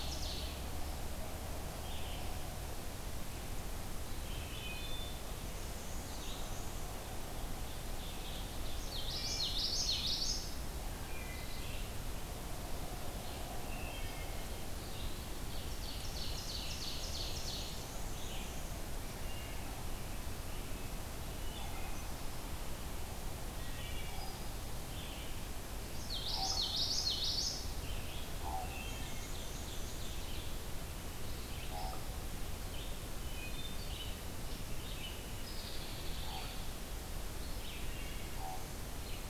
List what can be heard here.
Ovenbird, Red-eyed Vireo, Wood Thrush, Black-and-white Warbler, Common Yellowthroat, Common Raven, Hairy Woodpecker